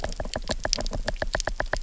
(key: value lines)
label: biophony, knock
recorder: SoundTrap 300